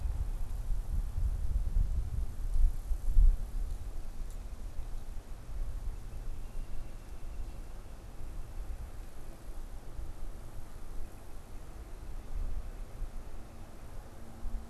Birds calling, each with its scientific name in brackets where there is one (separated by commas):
Northern Flicker (Colaptes auratus)